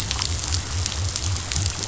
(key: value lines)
label: biophony
recorder: SoundTrap 500